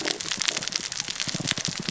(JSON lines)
{"label": "biophony, cascading saw", "recorder": "SoundTrap 600 or HydroMoth"}